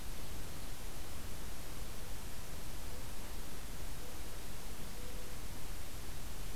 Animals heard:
forest ambience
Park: Acadia National Park